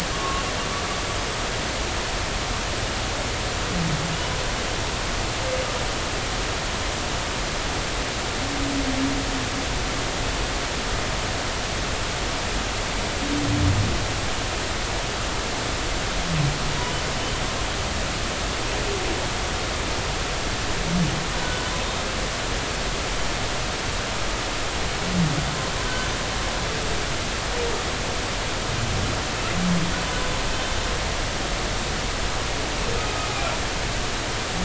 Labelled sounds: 21.4	21.7	humpback whale, 1.4 to 1.6 kHz

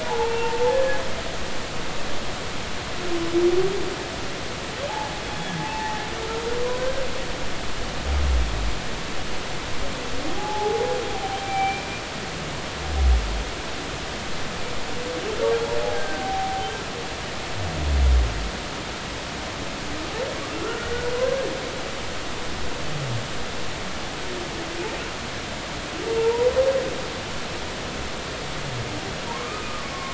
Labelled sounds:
0.0	1.0	humpback whale, 0.80 to 2.8 kHz
5.6	6.0	humpback whale, 0.83 to 0.93 kHz
6.8	7.0	humpback whale, 1.5 to 1.6 kHz
10.4	11.9	humpback whale, 0.80 to 2.4 kHz
15.9	16.7	humpback whale, 0.80 to 1.7 kHz
20.6	21.1	humpback whale, 1.3 to 2.0 kHz
26.2	26.5	humpback whale, 0.86 to 1.0 kHz
29.3	30.1	humpback whale, 0.86 to 1.3 kHz

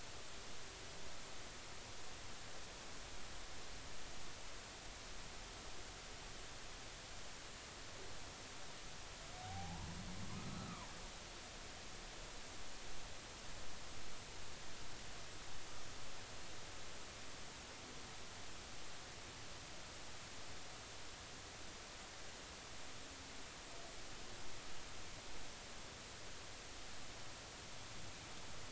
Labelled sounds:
9.4	10.9	humpback whale, 0.80 to 1.5 kHz

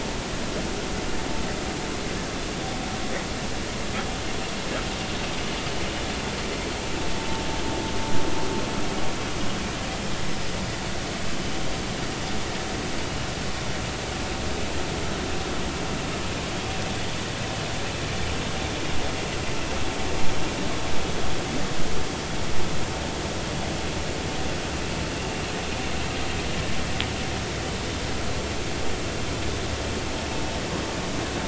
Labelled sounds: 25.2	25.4	vessel noise, 2.6 to 2.8 kHz

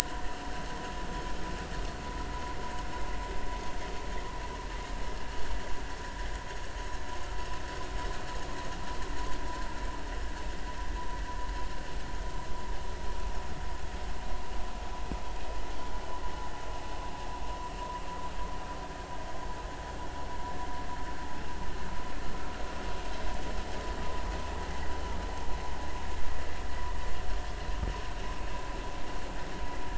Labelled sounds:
1.0	1.4	vessel noise, 1.7 to 1.9 kHz

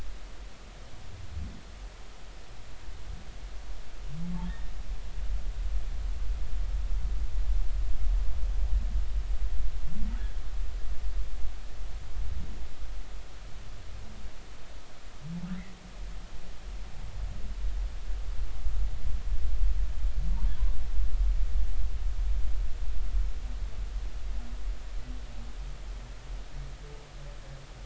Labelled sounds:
4.5	4.7	humpback whale, 1.7 to 1.9 kHz

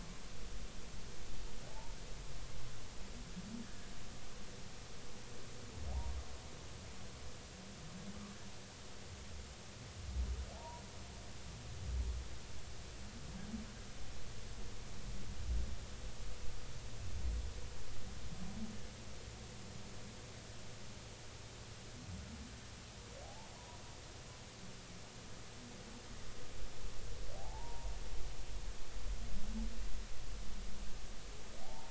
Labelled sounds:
1.6	2.0	humpback whale, 0.80 to 1.0 kHz
3.6	3.9	humpback whale, 1.6 to 1.8 kHz
10.5	10.8	humpback whale, 0.80 to 1.0 kHz
23.2	23.8	humpback whale, 0.80 to 1.1 kHz
27.3	27.9	humpback whale, 0.80 to 1.0 kHz
31.6	31.9	humpback whale, 0.80 to 0.99 kHz

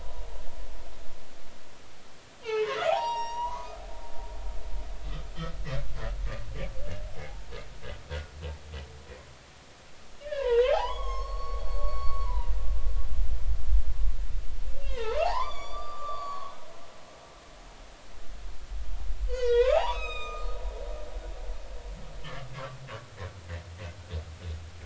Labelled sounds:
2.4	3.8	humpback whale, 0.80 to 7.6 kHz
7.2	7.5	humpback whale, 0.80 to 0.96 kHz
10.2	13.5	humpback whale, 0.80 to 6.5 kHz
14.8	16.5	humpback whale, 0.80 to 8.0 kHz
19.3	20.6	humpback whale, 0.80 to 7.7 kHz
22.5	22.8	humpback whale, 1.4 to 1.7 kHz

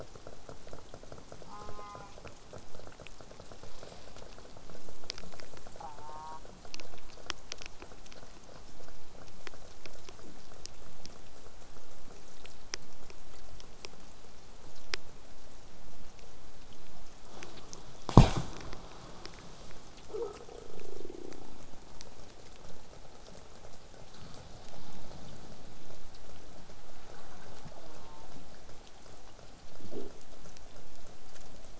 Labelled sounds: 1.5	2.1	killer whale, southern resident, J pod, call S04, 0.28 to 8.0 kHz
5.8	6.4	killer whale, southern resident, J pod, call S04, 0.39 to 1.9 kHz
27.8	28.3	killer whale, southern resident, J pod, call S04, 0.19 to 1.6 kHz

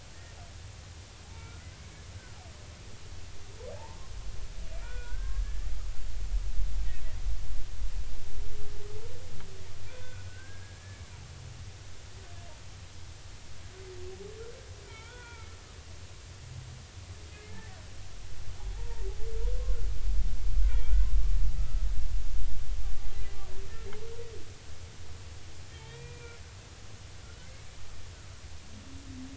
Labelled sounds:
1.2	1.7	humpback whale, 0.80 to 2.4 kHz
3.1	4.0	humpback whale, 0.83 to 1.6 kHz
4.8	5.7	humpback whale, 1.3 to 1.9 kHz
9.8	11.0	humpback whale, 1.4 to 2.5 kHz
14.9	15.6	humpback whale, 0.86 to 3.5 kHz
17.3	17.8	humpback whale, 1.7 to 2.2 kHz
18.7	19.1	humpback whale, 0.80 to 0.99 kHz
20.7	21.1	humpback whale, 1.3 to 2.5 kHz
21.6	21.8	humpback whale, 1.2 to 1.4 kHz
25.7	26.4	humpback whale, 1.8 to 3.4 kHz
27.2	27.8	humpback whale, 1.3 to 2.4 kHz

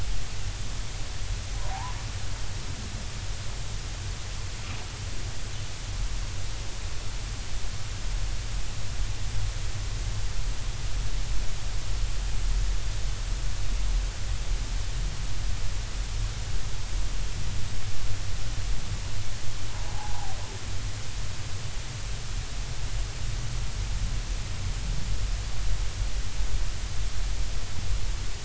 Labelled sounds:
1.7	1.9	humpback whale, 0.80 to 1.1 kHz
19.9	20.4	humpback whale, 0.80 to 1.1 kHz

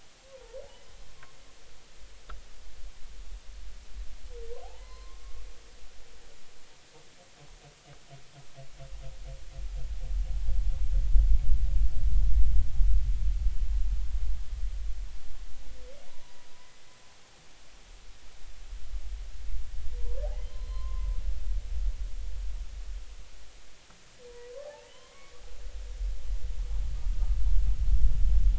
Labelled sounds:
0.3	0.6	humpback whale, 0.86 to 1.2 kHz
4.6	5.3	humpback whale, 0.80 to 4.2 kHz
16.1	16.4	humpback whale, 0.86 to 1.1 kHz
20.0	20.2	humpback whale, 0.90 to 1.1 kHz
20.5	21.1	humpback whale, 0.90 to 4.2 kHz
24.6	25.4	humpback whale, 0.80 to 3.2 kHz

